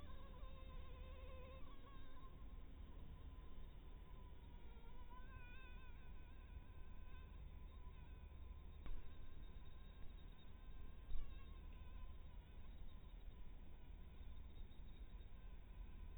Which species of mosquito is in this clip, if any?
Anopheles harrisoni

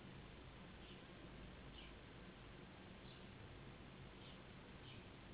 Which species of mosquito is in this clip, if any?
Anopheles gambiae s.s.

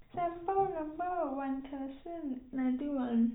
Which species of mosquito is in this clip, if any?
no mosquito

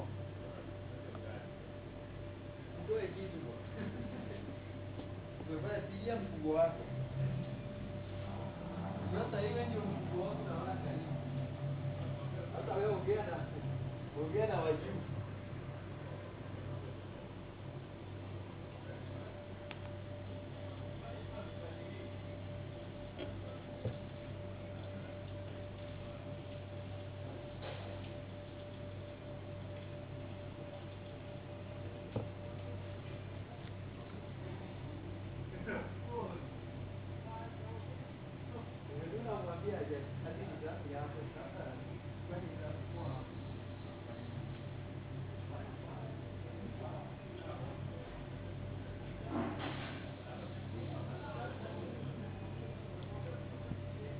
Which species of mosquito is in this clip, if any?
no mosquito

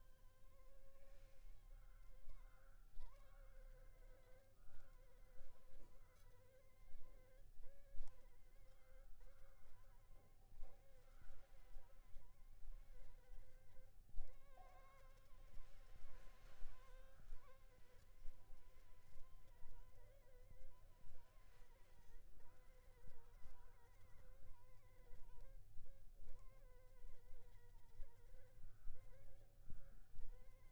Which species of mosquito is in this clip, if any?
Anopheles funestus s.s.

